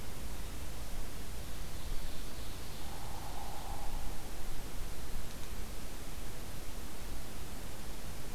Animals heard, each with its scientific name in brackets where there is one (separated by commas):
Ovenbird (Seiurus aurocapilla), Hairy Woodpecker (Dryobates villosus)